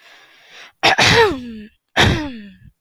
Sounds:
Throat clearing